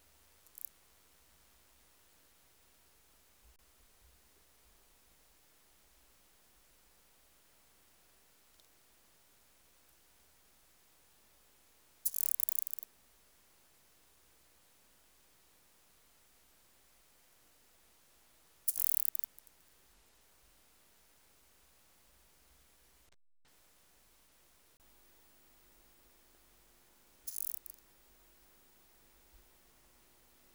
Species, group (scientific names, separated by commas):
Omocestus petraeus, Orthoptera